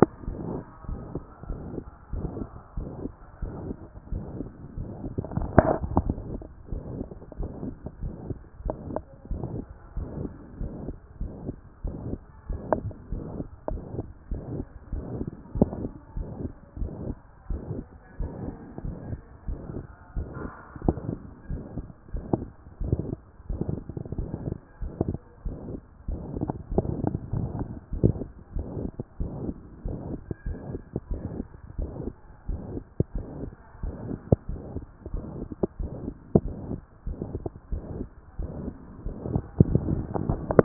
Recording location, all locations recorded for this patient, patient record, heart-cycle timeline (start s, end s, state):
tricuspid valve (TV)
aortic valve (AV)+pulmonary valve (PV)+tricuspid valve (TV)+mitral valve (MV)
#Age: Child
#Sex: Female
#Height: 150.0 cm
#Weight: 49.7 kg
#Pregnancy status: False
#Murmur: Present
#Murmur locations: tricuspid valve (TV)
#Most audible location: tricuspid valve (TV)
#Systolic murmur timing: Holosystolic
#Systolic murmur shape: Plateau
#Systolic murmur grading: I/VI
#Systolic murmur pitch: Medium
#Systolic murmur quality: Blowing
#Diastolic murmur timing: nan
#Diastolic murmur shape: nan
#Diastolic murmur grading: nan
#Diastolic murmur pitch: nan
#Diastolic murmur quality: nan
#Outcome: Abnormal
#Campaign: 2014 screening campaign
0.00	0.77	unannotated
0.77	0.88	diastole
0.88	1.00	S1
1.00	1.14	systole
1.14	1.22	S2
1.22	1.48	diastole
1.48	1.60	S1
1.60	1.74	systole
1.74	1.82	S2
1.82	2.12	diastole
2.12	2.28	S1
2.28	2.38	systole
2.38	2.48	S2
2.48	2.76	diastole
2.76	2.88	S1
2.88	3.02	systole
3.02	3.12	S2
3.12	3.42	diastole
3.42	3.54	S1
3.54	3.66	systole
3.66	3.76	S2
3.76	4.12	diastole
4.12	4.24	S1
4.24	4.38	systole
4.38	4.48	S2
4.48	4.78	diastole
4.78	4.88	S1
4.88	5.02	systole
5.02	5.12	S2
5.12	5.36	diastole
5.36	5.50	S1
5.50	5.63	systole
5.63	5.74	S2
5.74	6.02	diastole
6.02	6.16	S1
6.16	6.30	systole
6.30	6.42	S2
6.42	6.70	diastole
6.70	6.82	S1
6.82	6.96	systole
6.96	7.06	S2
7.06	7.38	diastole
7.38	7.50	S1
7.50	7.64	systole
7.64	7.74	S2
7.74	8.02	diastole
8.02	8.14	S1
8.14	8.28	systole
8.28	8.38	S2
8.38	8.64	diastole
8.64	8.76	S1
8.76	8.90	systole
8.90	9.00	S2
9.00	9.30	diastole
9.30	9.44	S1
9.44	9.54	systole
9.54	9.64	S2
9.64	9.96	diastole
9.96	10.08	S1
10.08	10.20	systole
10.20	10.30	S2
10.30	10.60	diastole
10.60	10.72	S1
10.72	10.86	systole
10.86	10.96	S2
10.96	11.20	diastole
11.20	11.32	S1
11.32	11.46	systole
11.46	11.56	S2
11.56	11.84	diastole
11.84	11.96	S1
11.96	12.08	systole
12.08	12.18	S2
12.18	12.48	diastole
12.48	12.62	S1
12.62	12.82	systole
12.82	12.90	S2
12.90	13.12	diastole
13.12	13.24	S1
13.24	13.36	systole
13.36	13.46	S2
13.46	13.70	diastole
13.70	13.82	S1
13.82	13.96	systole
13.96	14.06	S2
14.06	14.30	diastole
14.30	14.42	S1
14.42	14.54	systole
14.54	14.64	S2
14.64	14.92	diastole
14.92	15.04	S1
15.04	15.16	systole
15.16	15.26	S2
15.26	15.56	diastole
15.56	15.70	S1
15.70	15.82	systole
15.82	15.90	S2
15.90	16.16	diastole
16.16	16.28	S1
16.28	16.40	systole
16.40	16.50	S2
16.50	16.78	diastole
16.78	16.92	S1
16.92	17.06	systole
17.06	17.16	S2
17.16	17.50	diastole
17.50	17.62	S1
17.62	17.74	systole
17.74	17.84	S2
17.84	18.20	diastole
18.20	18.32	S1
18.32	18.44	systole
18.44	18.54	S2
18.54	18.84	diastole
18.84	18.96	S1
18.96	19.10	systole
19.10	19.20	S2
19.20	19.48	diastole
19.48	19.60	S1
19.60	19.74	systole
19.74	19.84	S2
19.84	20.16	diastole
20.16	20.28	S1
20.28	20.42	systole
20.42	20.50	S2
20.50	20.84	diastole
20.84	20.96	S1
20.96	21.08	systole
21.08	21.18	S2
21.18	21.50	diastole
21.50	21.62	S1
21.62	21.76	systole
21.76	21.86	S2
21.86	22.14	diastole
22.14	22.24	S1
22.24	22.36	systole
22.36	22.46	S2
22.46	22.82	diastole
22.82	23.00	S1
23.00	23.08	systole
23.08	23.18	S2
23.18	23.50	diastole
23.50	23.62	S1
23.62	23.70	systole
23.70	23.80	S2
23.80	24.16	diastole
24.16	24.30	S1
24.30	24.46	systole
24.46	24.54	S2
24.54	24.82	diastole
24.82	24.92	S1
24.92	25.06	systole
25.06	25.18	S2
25.18	25.44	diastole
25.44	25.56	S1
25.56	25.70	systole
25.70	25.78	S2
25.78	26.08	diastole
26.08	26.22	S1
26.22	26.36	systole
26.36	26.50	S2
26.50	26.72	diastole
26.72	26.88	S1
26.88	27.00	systole
27.00	27.12	S2
27.12	27.34	diastole
27.34	27.50	S1
27.50	27.58	systole
27.58	27.68	S2
27.68	27.94	diastole
27.94	28.14	S1
28.14	28.20	systole
28.20	28.28	S2
28.28	28.54	diastole
28.54	28.66	S1
28.66	28.78	systole
28.78	28.90	S2
28.90	29.20	diastole
29.20	29.32	S1
29.32	29.44	systole
29.44	29.54	S2
29.54	29.86	diastole
29.86	29.98	S1
29.98	30.10	systole
30.10	30.18	S2
30.18	30.46	diastole
30.46	30.58	S1
30.58	30.70	systole
30.70	30.80	S2
30.80	31.10	diastole
31.10	31.22	S1
31.22	31.36	systole
31.36	31.46	S2
31.46	31.78	diastole
31.78	31.90	S1
31.90	32.04	systole
32.04	32.12	S2
32.12	32.48	diastole
32.48	32.62	S1
32.62	32.72	systole
32.72	32.82	S2
32.82	33.14	diastole
33.14	33.26	S1
33.26	33.40	systole
33.40	33.50	S2
33.50	33.82	diastole
33.82	33.94	S1
33.94	34.08	systole
34.08	34.18	S2
34.18	34.48	diastole
34.48	34.60	S1
34.60	34.74	systole
34.74	34.84	S2
34.84	35.12	diastole
35.12	35.24	S1
35.24	35.38	systole
35.38	35.48	S2
35.48	35.80	diastole
35.80	35.92	S1
35.92	36.04	systole
36.04	36.14	S2
36.14	36.42	diastole
36.42	36.56	S1
36.56	36.68	systole
36.68	36.80	S2
36.80	37.06	diastole
37.06	37.18	S1
37.18	37.32	systole
37.32	37.42	S2
37.42	37.72	diastole
37.72	37.84	S1
37.84	37.98	systole
37.98	38.06	S2
38.06	38.38	diastole
38.38	38.50	S1
38.50	38.64	systole
38.64	38.74	S2
38.74	39.06	diastole
39.06	39.16	S1
39.16	39.30	systole
39.30	39.42	S2
39.42	39.66	diastole
39.66	40.64	unannotated